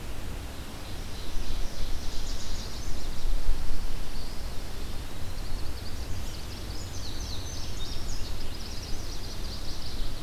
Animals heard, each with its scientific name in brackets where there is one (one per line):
unidentified call
Ovenbird (Seiurus aurocapilla)
Indigo Bunting (Passerina cyanea)
Eastern Wood-Pewee (Contopus virens)
Chestnut-sided Warbler (Setophaga pensylvanica)